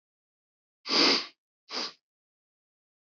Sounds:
Sniff